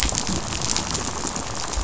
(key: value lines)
label: biophony, rattle
recorder: SoundTrap 500